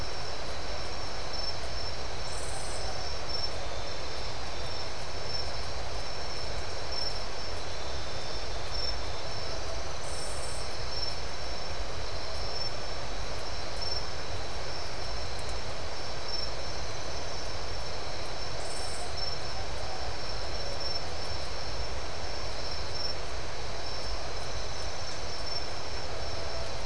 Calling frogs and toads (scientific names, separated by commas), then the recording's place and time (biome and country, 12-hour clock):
none
Atlantic Forest, Brazil, 5:00am